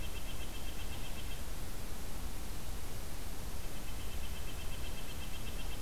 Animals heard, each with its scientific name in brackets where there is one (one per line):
Red-breasted Nuthatch (Sitta canadensis)